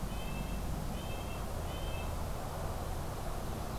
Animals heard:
Red-breasted Nuthatch (Sitta canadensis)

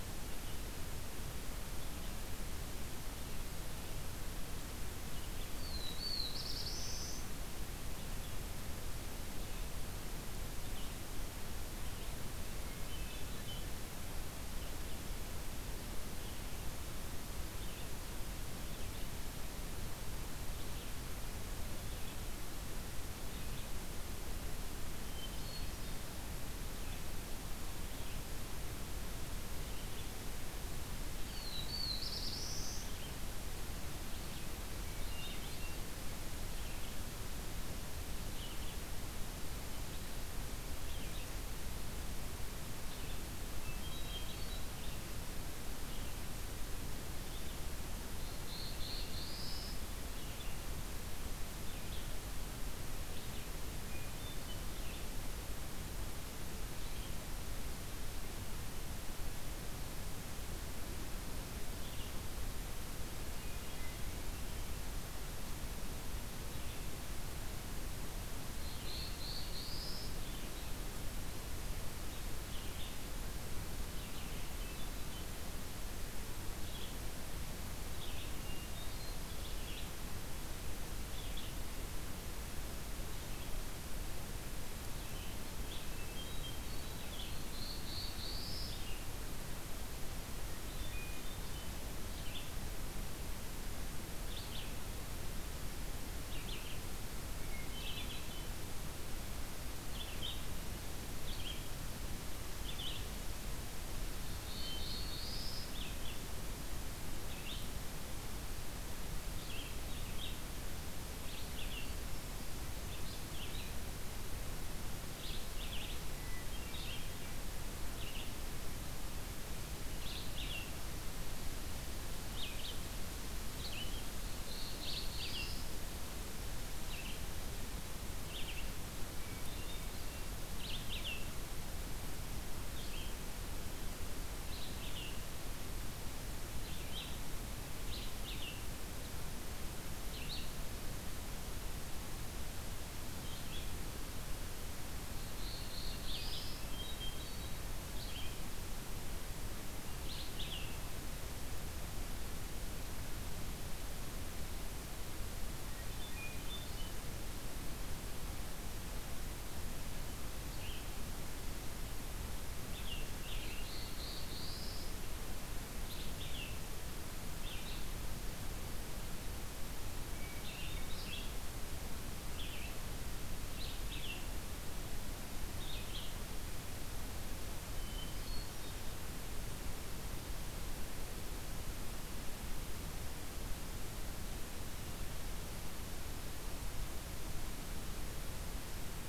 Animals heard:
Hermit Thrush (Catharus guttatus)
Red-eyed Vireo (Vireo olivaceus)
Black-throated Blue Warbler (Setophaga caerulescens)

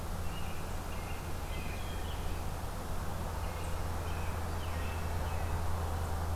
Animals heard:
Wood Thrush (Hylocichla mustelina)
American Robin (Turdus migratorius)

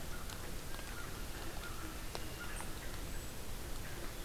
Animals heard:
American Crow (Corvus brachyrhynchos)

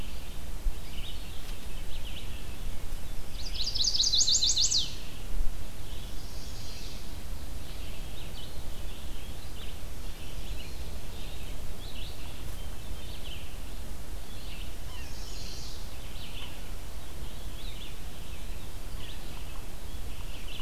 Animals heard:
Chestnut-sided Warbler (Setophaga pensylvanica)
Eastern Wood-Pewee (Contopus virens)
Red-eyed Vireo (Vireo olivaceus)

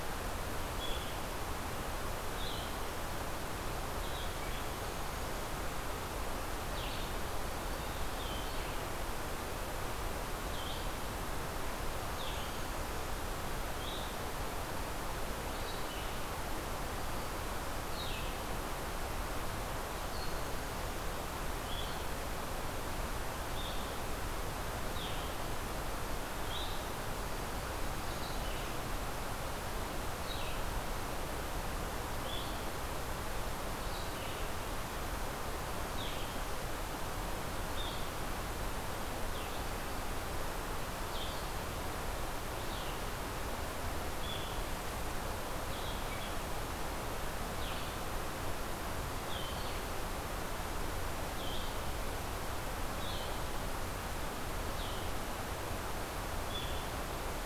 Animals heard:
Blue-headed Vireo (Vireo solitarius)
Blackburnian Warbler (Setophaga fusca)

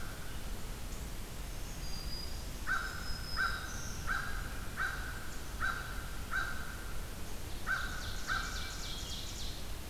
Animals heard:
Ovenbird (Seiurus aurocapilla)
Hermit Thrush (Catharus guttatus)
Black-throated Green Warbler (Setophaga virens)
American Crow (Corvus brachyrhynchos)

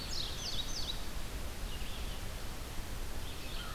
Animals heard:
Indigo Bunting (Passerina cyanea)
Red-eyed Vireo (Vireo olivaceus)

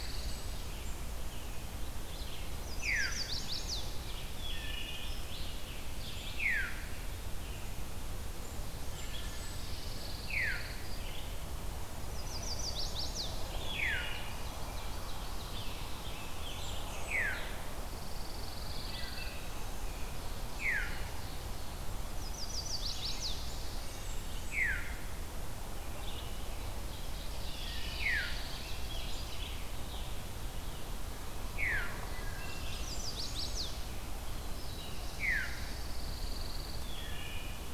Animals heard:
Black-throated Blue Warbler (Setophaga caerulescens)
Ovenbird (Seiurus aurocapilla)
Wood Thrush (Hylocichla mustelina)
Pine Warbler (Setophaga pinus)
Blackburnian Warbler (Setophaga fusca)
Veery (Catharus fuscescens)
Red-eyed Vireo (Vireo olivaceus)
Chestnut-sided Warbler (Setophaga pensylvanica)
Scarlet Tanager (Piranga olivacea)

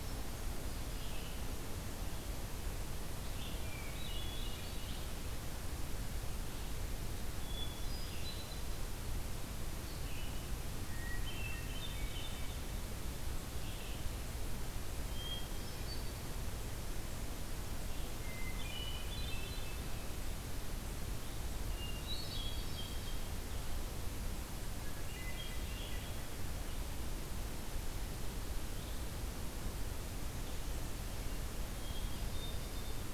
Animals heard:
Hermit Thrush (Catharus guttatus)
Red-eyed Vireo (Vireo olivaceus)

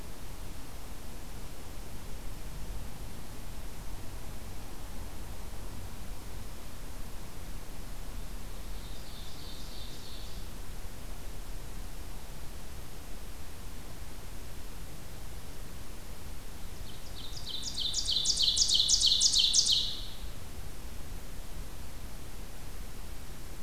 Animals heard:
Ovenbird (Seiurus aurocapilla)

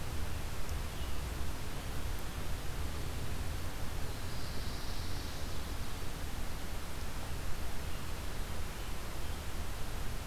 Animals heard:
Black-throated Blue Warbler (Setophaga caerulescens)
Pine Warbler (Setophaga pinus)

